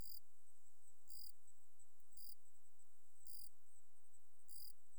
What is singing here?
Gryllus assimilis, an orthopteran